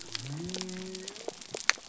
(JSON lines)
{"label": "biophony", "recorder": "SoundTrap 300"}